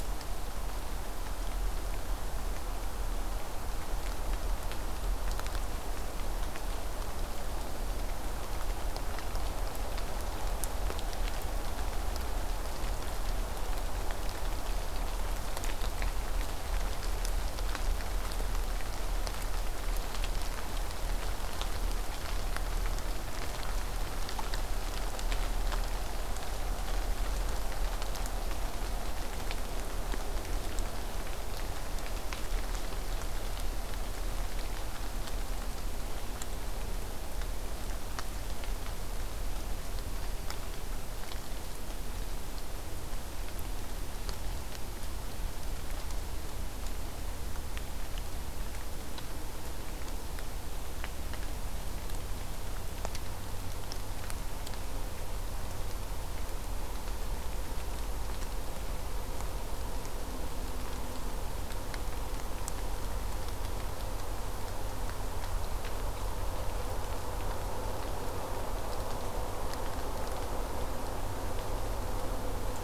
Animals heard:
forest ambience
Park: Acadia National Park